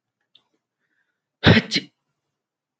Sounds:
Sneeze